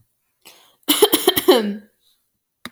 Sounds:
Cough